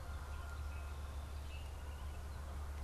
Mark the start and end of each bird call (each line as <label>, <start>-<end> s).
Gray Catbird (Dumetella carolinensis), 0.6-2.8 s